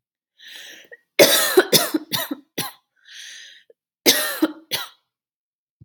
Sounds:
Cough